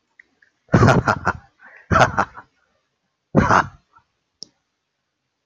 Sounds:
Laughter